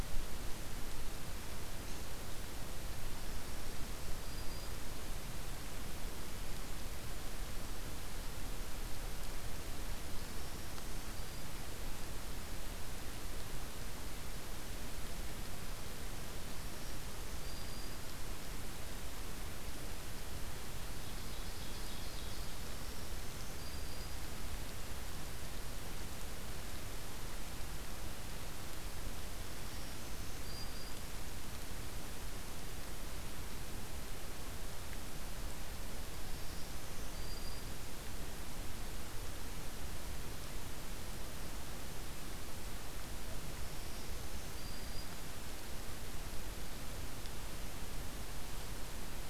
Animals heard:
Black-throated Green Warbler (Setophaga virens)
Ovenbird (Seiurus aurocapilla)

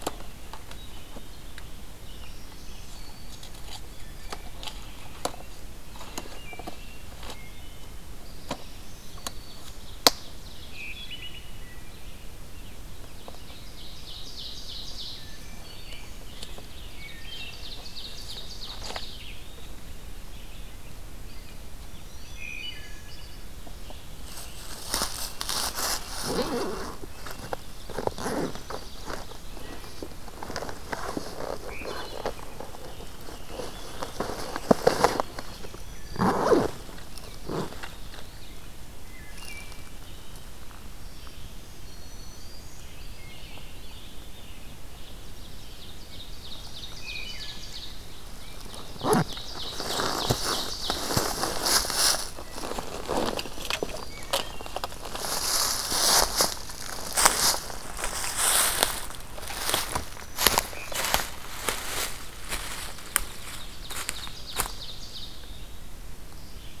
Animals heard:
American Robin (Turdus migratorius)
Ovenbird (Seiurus aurocapilla)
Wood Thrush (Hylocichla mustelina)
Black-throated Green Warbler (Setophaga virens)
Eastern Wood-Pewee (Contopus virens)
Red-breasted Nuthatch (Sitta canadensis)

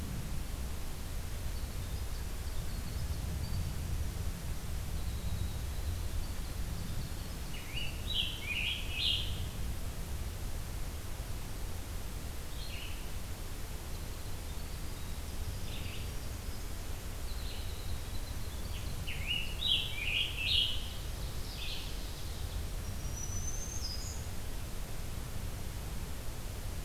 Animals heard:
Scarlet Tanager (Piranga olivacea)
Ovenbird (Seiurus aurocapilla)
Red-eyed Vireo (Vireo olivaceus)
Black-throated Green Warbler (Setophaga virens)
Winter Wren (Troglodytes hiemalis)

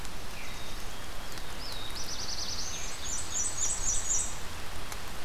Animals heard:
Black-capped Chickadee (Poecile atricapillus)
Black-throated Blue Warbler (Setophaga caerulescens)
Black-and-white Warbler (Mniotilta varia)

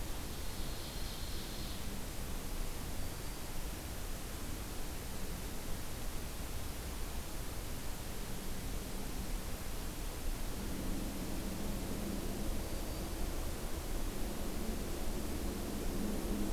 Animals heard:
Ovenbird (Seiurus aurocapilla)
Black-throated Green Warbler (Setophaga virens)

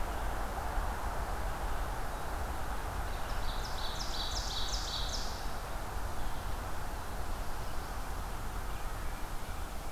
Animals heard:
Ovenbird (Seiurus aurocapilla)

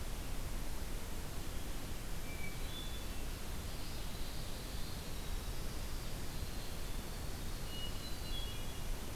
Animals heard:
Winter Wren (Troglodytes hiemalis)
Ovenbird (Seiurus aurocapilla)
Hermit Thrush (Catharus guttatus)

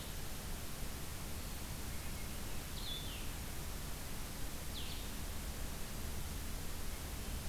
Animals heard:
Blue-headed Vireo (Vireo solitarius)

